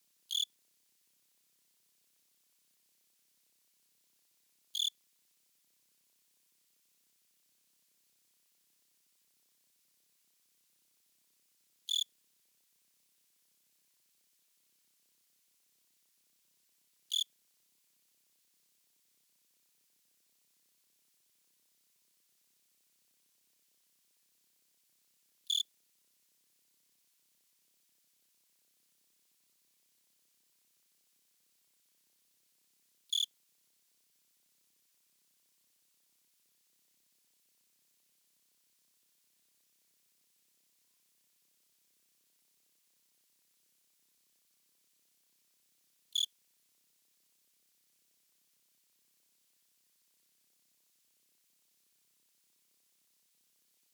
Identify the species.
Eugryllodes pipiens